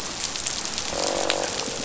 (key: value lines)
label: biophony, croak
recorder: SoundTrap 500